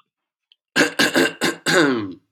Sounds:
Throat clearing